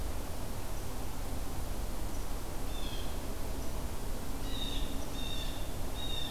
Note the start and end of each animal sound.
2.6s-3.2s: Blue Jay (Cyanocitta cristata)
4.3s-6.3s: Blue Jay (Cyanocitta cristata)

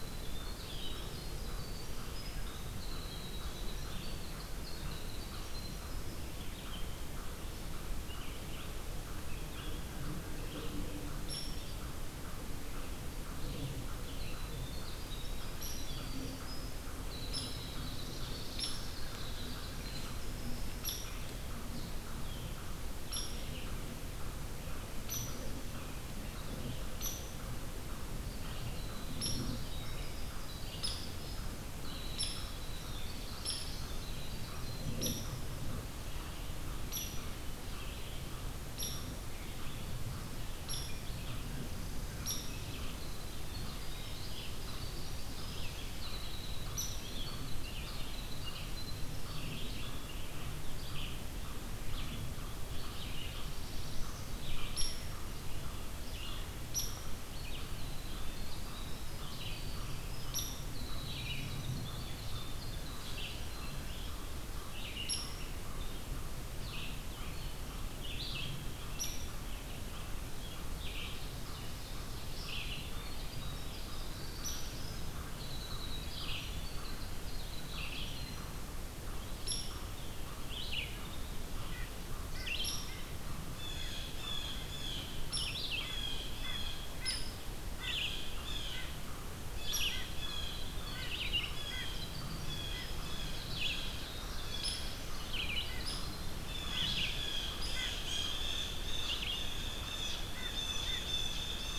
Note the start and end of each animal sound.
0.0s-6.2s: Winter Wren (Troglodytes hiemalis)
0.0s-101.8s: American Crow (Corvus brachyrhynchos)
6.4s-68.9s: Red-eyed Vireo (Vireo olivaceus)
11.2s-11.5s: Downy Woodpecker (Dryobates pubescens)
13.9s-20.6s: Winter Wren (Troglodytes hiemalis)
15.5s-16.0s: Downy Woodpecker (Dryobates pubescens)
17.2s-17.6s: Downy Woodpecker (Dryobates pubescens)
18.4s-18.9s: Downy Woodpecker (Dryobates pubescens)
20.8s-21.1s: Downy Woodpecker (Dryobates pubescens)
23.0s-23.5s: Downy Woodpecker (Dryobates pubescens)
25.1s-25.3s: Downy Woodpecker (Dryobates pubescens)
27.0s-27.2s: Downy Woodpecker (Dryobates pubescens)
29.1s-29.4s: Downy Woodpecker (Dryobates pubescens)
30.7s-31.1s: Downy Woodpecker (Dryobates pubescens)
32.1s-32.5s: Downy Woodpecker (Dryobates pubescens)
33.4s-33.7s: Downy Woodpecker (Dryobates pubescens)
34.9s-35.4s: Downy Woodpecker (Dryobates pubescens)
36.8s-37.2s: Downy Woodpecker (Dryobates pubescens)
38.7s-39.0s: Downy Woodpecker (Dryobates pubescens)
40.6s-40.9s: Downy Woodpecker (Dryobates pubescens)
42.2s-42.5s: Downy Woodpecker (Dryobates pubescens)
42.6s-50.1s: Winter Wren (Troglodytes hiemalis)
46.6s-47.2s: Downy Woodpecker (Dryobates pubescens)
54.6s-54.9s: Downy Woodpecker (Dryobates pubescens)
56.1s-64.0s: Winter Wren (Troglodytes hiemalis)
56.6s-57.0s: Downy Woodpecker (Dryobates pubescens)
60.3s-60.6s: Downy Woodpecker (Dryobates pubescens)
65.0s-65.5s: Downy Woodpecker (Dryobates pubescens)
68.9s-69.2s: Downy Woodpecker (Dryobates pubescens)
70.7s-101.8s: Red-eyed Vireo (Vireo olivaceus)
72.0s-78.5s: Winter Wren (Troglodytes hiemalis)
74.3s-74.7s: Downy Woodpecker (Dryobates pubescens)
79.4s-79.7s: Downy Woodpecker (Dryobates pubescens)
82.4s-82.9s: Downy Woodpecker (Dryobates pubescens)
83.5s-85.1s: Blue Jay (Cyanocitta cristata)
85.2s-85.6s: Downy Woodpecker (Dryobates pubescens)
85.8s-86.9s: Blue Jay (Cyanocitta cristata)
87.0s-87.2s: Downy Woodpecker (Dryobates pubescens)
87.8s-88.8s: Blue Jay (Cyanocitta cristata)
89.5s-90.7s: Blue Jay (Cyanocitta cristata)
89.6s-89.9s: Downy Woodpecker (Dryobates pubescens)
91.5s-93.0s: Blue Jay (Cyanocitta cristata)
93.4s-95.0s: Blue Jay (Cyanocitta cristata)
94.6s-95.0s: Downy Woodpecker (Dryobates pubescens)
95.7s-96.1s: Downy Woodpecker (Dryobates pubescens)
96.4s-101.8s: Blue Jay (Cyanocitta cristata)
97.6s-97.9s: Downy Woodpecker (Dryobates pubescens)

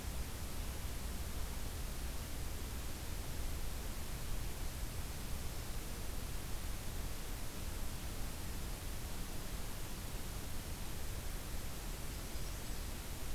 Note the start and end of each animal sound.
11.7s-13.1s: Golden-crowned Kinglet (Regulus satrapa)
12.0s-13.0s: Magnolia Warbler (Setophaga magnolia)

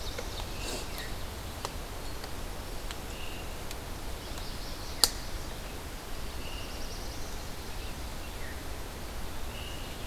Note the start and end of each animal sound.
0.0s-0.7s: Chestnut-sided Warbler (Setophaga pensylvanica)
0.0s-1.2s: Ovenbird (Seiurus aurocapilla)
0.5s-1.3s: Veery (Catharus fuscescens)
2.8s-3.5s: Veery (Catharus fuscescens)
4.0s-5.5s: Chestnut-sided Warbler (Setophaga pensylvanica)
6.0s-7.7s: Black-throated Blue Warbler (Setophaga caerulescens)
6.2s-6.9s: Veery (Catharus fuscescens)
8.1s-10.1s: Veery (Catharus fuscescens)

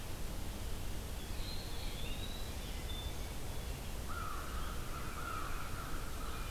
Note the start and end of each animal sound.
1.1s-2.5s: Eastern Wood-Pewee (Contopus virens)
4.0s-6.5s: American Crow (Corvus brachyrhynchos)

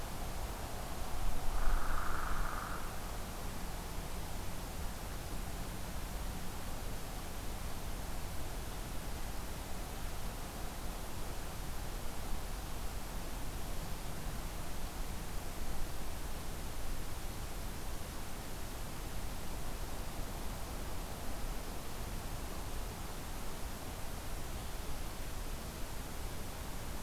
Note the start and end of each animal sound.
1.5s-2.9s: Hairy Woodpecker (Dryobates villosus)

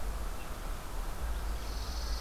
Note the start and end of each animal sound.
0.0s-2.2s: Red-eyed Vireo (Vireo olivaceus)
1.4s-2.2s: Chipping Sparrow (Spizella passerina)

